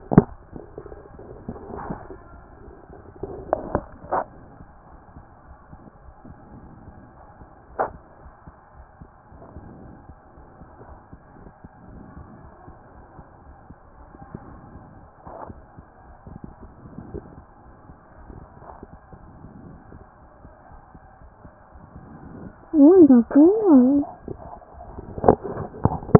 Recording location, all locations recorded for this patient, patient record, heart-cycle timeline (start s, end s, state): aortic valve (AV)
aortic valve (AV)+pulmonary valve (PV)+tricuspid valve (TV)
#Age: Child
#Sex: Female
#Height: 128.0 cm
#Weight: 35.2 kg
#Pregnancy status: False
#Murmur: Absent
#Murmur locations: nan
#Most audible location: nan
#Systolic murmur timing: nan
#Systolic murmur shape: nan
#Systolic murmur grading: nan
#Systolic murmur pitch: nan
#Systolic murmur quality: nan
#Diastolic murmur timing: nan
#Diastolic murmur shape: nan
#Diastolic murmur grading: nan
#Diastolic murmur pitch: nan
#Diastolic murmur quality: nan
#Outcome: Normal
#Campaign: 2014 screening campaign
0.00	8.23	unannotated
8.23	8.24	diastole
8.24	8.32	S1
8.32	8.46	systole
8.46	8.54	S2
8.54	8.74	diastole
8.74	8.86	S1
8.86	9.00	systole
9.00	9.10	S2
9.10	9.33	diastole
9.33	9.39	S1
9.39	9.56	systole
9.56	9.70	S2
9.70	9.88	diastole
9.88	9.99	S1
9.99	10.10	systole
10.10	10.17	S2
10.17	10.40	diastole
10.40	10.49	S1
10.49	10.61	systole
10.61	10.70	S2
10.70	10.89	diastole
10.89	10.96	S1
10.96	11.12	systole
11.12	11.22	S2
11.22	11.39	diastole
11.39	11.44	S1
11.44	26.19	unannotated